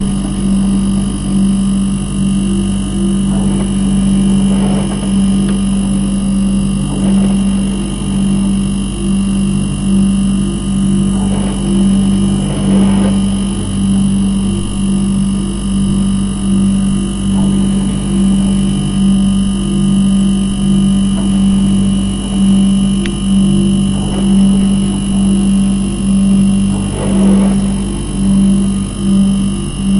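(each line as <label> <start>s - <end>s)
An electric hum. 0.0s - 30.0s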